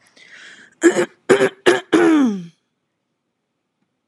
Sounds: Throat clearing